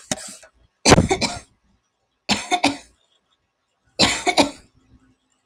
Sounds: Cough